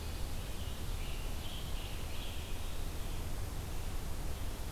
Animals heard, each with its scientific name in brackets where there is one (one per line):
Scarlet Tanager (Piranga olivacea)